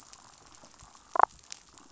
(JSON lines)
{"label": "biophony, damselfish", "recorder": "SoundTrap 500"}